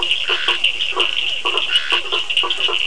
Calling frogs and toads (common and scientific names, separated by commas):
blacksmith tree frog (Boana faber), Physalaemus cuvieri, Scinax perereca, Cochran's lime tree frog (Sphaenorhynchus surdus)